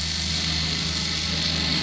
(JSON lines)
{"label": "anthrophony, boat engine", "recorder": "SoundTrap 500"}